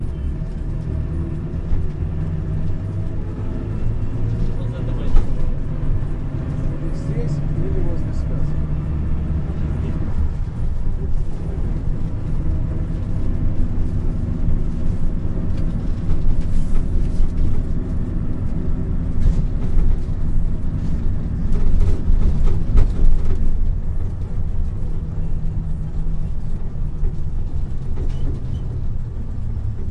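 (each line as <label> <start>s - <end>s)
Road noise. 0.0s - 29.9s
A man is speaking. 4.8s - 6.3s
A man is speaking. 7.1s - 9.0s
A man is speaking. 10.2s - 12.5s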